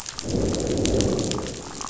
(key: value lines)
label: biophony, growl
recorder: SoundTrap 500